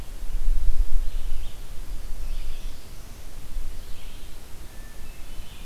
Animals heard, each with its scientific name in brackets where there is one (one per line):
Hermit Thrush (Catharus guttatus)
Black-throated Blue Warbler (Setophaga caerulescens)
Red-eyed Vireo (Vireo olivaceus)